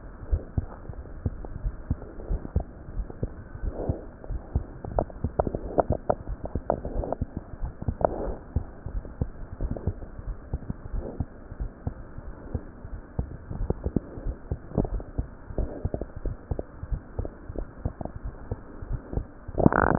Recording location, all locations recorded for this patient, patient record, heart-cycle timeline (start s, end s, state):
aortic valve (AV)
aortic valve (AV)+pulmonary valve (PV)+tricuspid valve (TV)+mitral valve (MV)
#Age: Child
#Sex: Male
#Height: nan
#Weight: nan
#Pregnancy status: False
#Murmur: Present
#Murmur locations: tricuspid valve (TV)
#Most audible location: tricuspid valve (TV)
#Systolic murmur timing: Early-systolic
#Systolic murmur shape: Decrescendo
#Systolic murmur grading: I/VI
#Systolic murmur pitch: Low
#Systolic murmur quality: Blowing
#Diastolic murmur timing: nan
#Diastolic murmur shape: nan
#Diastolic murmur grading: nan
#Diastolic murmur pitch: nan
#Diastolic murmur quality: nan
#Outcome: Abnormal
#Campaign: 2015 screening campaign
0.00	0.28	diastole
0.28	0.44	S1
0.44	0.54	systole
0.54	0.68	S2
0.68	0.96	diastole
0.96	1.06	S1
1.06	1.22	systole
1.22	1.34	S2
1.34	1.62	diastole
1.62	1.76	S1
1.76	1.86	systole
1.86	1.98	S2
1.98	2.28	diastole
2.28	2.42	S1
2.42	2.54	systole
2.54	2.68	S2
2.68	2.96	diastole
2.96	3.08	S1
3.08	3.22	systole
3.22	3.32	S2
3.32	3.60	diastole
3.60	3.74	S1
3.74	3.86	systole
3.86	3.98	S2
3.98	4.28	diastole
4.28	4.42	S1
4.42	4.54	systole
4.54	4.66	S2
4.66	4.92	diastole
4.92	5.08	S1
5.08	5.20	systole
5.20	5.32	S2
5.32	5.62	diastole
5.62	5.74	S1
5.74	5.88	systole
5.88	6.02	S2
6.02	6.26	diastole
6.26	6.40	S1
6.40	6.54	systole
6.54	6.64	S2
6.64	6.94	diastole
6.94	7.06	S1
7.06	7.20	systole
7.20	7.32	S2
7.32	7.62	diastole
7.62	7.72	S1
7.72	7.82	systole
7.82	7.96	S2
7.96	8.22	diastole
8.22	8.36	S1
8.36	8.52	systole
8.52	8.66	S2
8.66	8.92	diastole
8.92	9.04	S1
9.04	9.20	systole
9.20	9.32	S2
9.32	9.60	diastole
9.60	9.72	S1
9.72	9.86	systole
9.86	9.98	S2
9.98	10.26	diastole
10.26	10.38	S1
10.38	10.52	systole
10.52	10.62	S2
10.62	10.92	diastole
10.92	11.06	S1
11.06	11.18	systole
11.18	11.30	S2
11.30	11.60	diastole
11.60	11.72	S1
11.72	11.82	systole
11.82	11.94	S2
11.94	12.26	diastole
12.26	12.34	S1
12.34	12.52	systole
12.52	12.64	S2
12.64	12.90	diastole
12.90	13.00	S1
13.00	13.14	systole
13.14	13.26	S2
13.26	13.52	diastole
13.52	13.68	S1
13.68	13.84	systole
13.84	13.94	S2
13.94	14.22	diastole
14.22	14.36	S1
14.36	14.50	systole
14.50	14.60	S2
14.60	14.90	diastole
14.90	15.04	S1
15.04	15.16	systole
15.16	15.30	S2
15.30	15.56	diastole
15.56	15.72	S1
15.72	15.84	systole
15.84	15.98	S2
15.98	16.24	diastole
16.24	16.38	S1
16.38	16.50	systole
16.50	16.58	S2
16.58	16.84	diastole
16.84	17.00	S1
17.00	17.16	systole
17.16	17.28	S2
17.28	17.56	diastole
17.56	17.68	S1
17.68	17.84	systole
17.84	17.94	S2
17.94	18.24	diastole
18.24	18.34	S1
18.34	18.48	systole
18.48	18.60	S2
18.60	18.88	diastole
18.88	19.02	S1
19.02	19.14	systole
19.14	19.28	S2
19.28	19.56	diastole